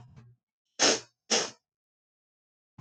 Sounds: Sniff